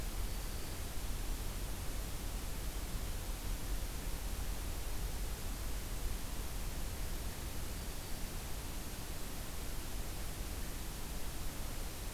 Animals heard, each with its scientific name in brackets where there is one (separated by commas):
Black-throated Green Warbler (Setophaga virens)